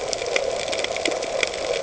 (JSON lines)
{"label": "ambient", "recorder": "HydroMoth"}